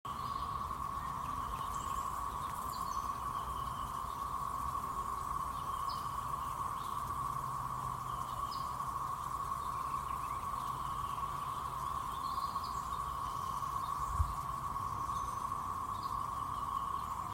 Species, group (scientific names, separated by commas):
Magicicada tredecim, Cicadidae